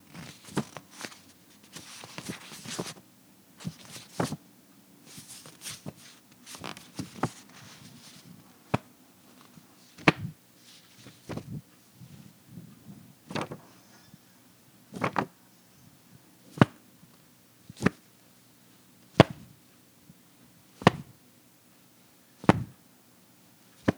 Is that a dog?
no